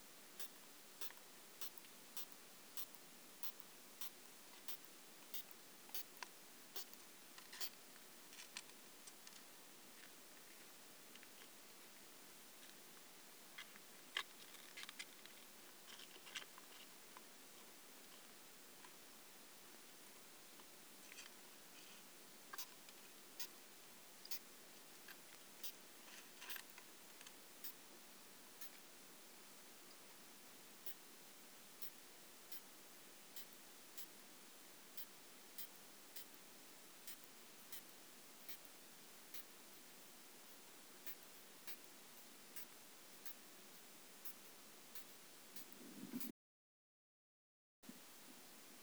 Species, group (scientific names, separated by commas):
Isophya pyrenaea, Orthoptera